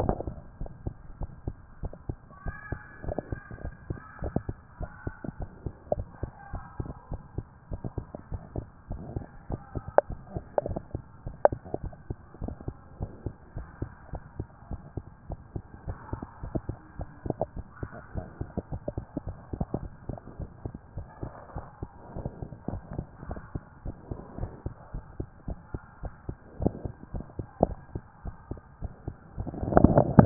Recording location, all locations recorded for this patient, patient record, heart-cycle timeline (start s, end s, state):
tricuspid valve (TV)
aortic valve (AV)+pulmonary valve (PV)+tricuspid valve (TV)+mitral valve (MV)
#Age: Child
#Sex: Male
#Height: 104.0 cm
#Weight: 23.0 kg
#Pregnancy status: False
#Murmur: Absent
#Murmur locations: nan
#Most audible location: nan
#Systolic murmur timing: nan
#Systolic murmur shape: nan
#Systolic murmur grading: nan
#Systolic murmur pitch: nan
#Systolic murmur quality: nan
#Diastolic murmur timing: nan
#Diastolic murmur shape: nan
#Diastolic murmur grading: nan
#Diastolic murmur pitch: nan
#Diastolic murmur quality: nan
#Outcome: Abnormal
#Campaign: 2014 screening campaign
0.00	0.61	unannotated
0.61	0.72	S1
0.72	0.84	systole
0.84	0.98	S2
0.98	1.20	diastole
1.20	1.34	S1
1.34	1.44	systole
1.44	1.58	S2
1.58	1.82	diastole
1.82	1.96	S1
1.96	2.06	systole
2.06	2.20	S2
2.20	2.44	diastole
2.44	2.58	S1
2.58	2.68	systole
2.68	2.82	S2
2.82	3.04	diastole
3.04	3.16	S1
3.16	3.28	systole
3.28	3.42	S2
3.42	3.62	diastole
3.62	3.74	S1
3.74	3.86	systole
3.86	4.00	S2
4.00	4.20	diastole
4.20	4.34	S1
4.34	4.46	systole
4.46	4.56	S2
4.56	4.80	diastole
4.80	4.90	S1
4.90	5.02	systole
5.02	5.14	S2
5.14	5.38	diastole
5.38	5.50	S1
5.50	5.62	systole
5.62	5.74	S2
5.74	5.96	diastole
5.96	6.10	S1
6.10	6.16	systole
6.16	6.30	S2
6.30	6.50	diastole
6.50	6.64	S1
6.64	6.76	systole
6.76	6.90	S2
6.90	7.10	diastole
7.10	7.24	S1
7.24	7.34	systole
7.34	7.46	S2
7.46	7.70	diastole
7.70	7.82	S1
7.82	7.94	systole
7.94	8.08	S2
8.08	8.30	diastole
8.30	8.42	S1
8.42	8.54	systole
8.54	8.66	S2
8.66	8.88	diastole
8.88	9.02	S1
9.02	9.14	systole
9.14	9.28	S2
9.28	9.48	diastole
9.48	9.62	S1
9.62	9.74	systole
9.74	9.84	S2
9.84	10.08	diastole
10.08	10.20	S1
10.20	10.32	systole
10.32	10.44	S2
10.44	10.64	diastole
10.64	10.82	S1
10.82	10.92	systole
10.92	11.02	S2
11.02	11.24	diastole
11.24	11.36	S1
11.36	11.50	systole
11.50	11.60	S2
11.60	11.80	diastole
11.80	11.94	S1
11.94	12.06	systole
12.06	12.18	S2
12.18	12.42	diastole
12.42	12.56	S1
12.56	12.66	systole
12.66	12.76	S2
12.76	13.00	diastole
13.00	13.14	S1
13.14	13.24	systole
13.24	13.34	S2
13.34	13.56	diastole
13.56	13.68	S1
13.68	13.80	systole
13.80	13.90	S2
13.90	14.12	diastole
14.12	14.24	S1
14.24	14.36	systole
14.36	14.46	S2
14.46	14.70	diastole
14.70	14.84	S1
14.84	14.94	systole
14.94	15.04	S2
15.04	15.26	diastole
15.26	15.40	S1
15.40	15.54	systole
15.54	15.64	S2
15.64	15.86	diastole
15.86	15.98	S1
15.98	16.10	systole
16.10	16.20	S2
16.20	16.42	diastole
16.42	16.54	S1
16.54	16.68	systole
16.68	16.78	S2
16.78	16.98	diastole
16.98	17.10	S1
17.10	17.24	systole
17.24	17.38	S2
17.38	17.56	diastole
17.56	17.66	S1
17.66	17.80	systole
17.80	17.90	S2
17.90	18.14	diastole
18.14	18.26	S1
18.26	18.38	systole
18.38	18.48	S2
18.48	18.70	diastole
18.70	18.84	S1
18.84	18.96	systole
18.96	19.06	S2
19.06	19.26	diastole
19.26	19.38	S1
19.38	19.46	systole
19.46	19.54	S2
19.54	19.74	diastole
19.74	19.90	S1
19.90	20.04	systole
20.04	20.18	S2
20.18	20.40	diastole
20.40	20.50	S1
20.50	20.64	systole
20.64	20.74	S2
20.74	20.96	diastole
20.96	21.08	S1
21.08	21.20	systole
21.20	21.32	S2
21.32	21.54	diastole
21.54	21.66	S1
21.66	21.78	systole
21.78	21.90	S2
21.90	22.14	diastole
22.14	22.32	S1
22.32	22.40	systole
22.40	22.50	S2
22.50	22.72	diastole
22.72	22.84	S1
22.84	22.92	systole
22.92	23.06	S2
23.06	23.30	diastole
23.30	23.42	S1
23.42	23.54	systole
23.54	23.64	S2
23.64	23.86	diastole
23.86	23.96	S1
23.96	24.10	systole
24.10	24.18	S2
24.18	24.38	diastole
24.38	24.52	S1
24.52	24.64	systole
24.64	24.74	S2
24.74	24.94	diastole
24.94	25.04	S1
25.04	25.18	systole
25.18	25.28	S2
25.28	25.48	diastole
25.48	25.60	S1
25.60	25.72	systole
25.72	25.82	S2
25.82	26.04	diastole
26.04	26.14	S1
26.14	26.26	systole
26.26	26.36	S2
26.36	26.56	diastole
26.56	26.74	S1
26.74	26.84	systole
26.84	26.94	S2
26.94	27.14	diastole
27.14	27.28	S1
27.28	27.38	systole
27.38	27.46	S2
27.46	27.64	diastole
27.64	27.80	S1
27.80	27.94	systole
27.94	28.04	S2
28.04	28.26	diastole
28.26	28.36	S1
28.36	28.50	systole
28.50	28.60	S2
28.60	28.82	diastole
28.82	28.94	S1
28.94	29.06	systole
29.06	29.16	S2
29.16	29.21	diastole
29.21	30.26	unannotated